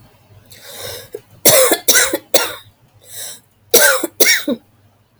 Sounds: Cough